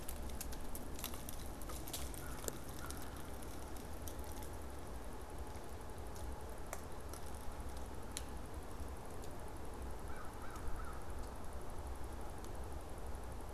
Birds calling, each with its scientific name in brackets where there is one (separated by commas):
American Crow (Corvus brachyrhynchos)